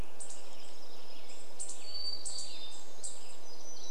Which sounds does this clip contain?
Western Tanager song, unidentified sound, unidentified bird chip note, warbler song